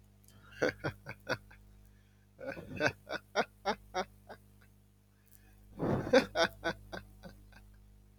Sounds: Laughter